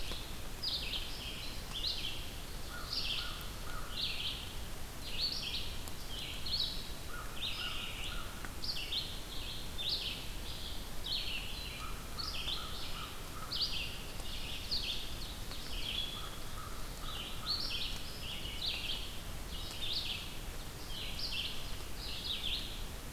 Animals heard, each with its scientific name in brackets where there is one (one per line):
Red-eyed Vireo (Vireo olivaceus)
American Crow (Corvus brachyrhynchos)